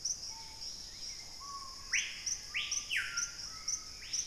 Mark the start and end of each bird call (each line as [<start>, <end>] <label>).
[0.00, 4.27] Hauxwell's Thrush (Turdus hauxwelli)
[0.00, 4.27] Screaming Piha (Lipaugus vociferans)
[0.23, 1.43] Dusky-capped Greenlet (Pachysylvia hypoxantha)